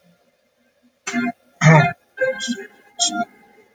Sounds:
Sneeze